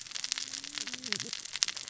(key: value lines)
label: biophony, cascading saw
recorder: SoundTrap 600 or HydroMoth